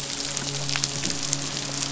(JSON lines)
{"label": "biophony, midshipman", "recorder": "SoundTrap 500"}